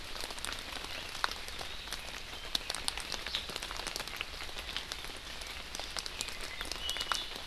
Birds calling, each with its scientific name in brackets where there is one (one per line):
Iiwi (Drepanis coccinea)